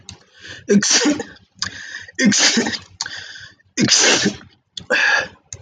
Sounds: Sneeze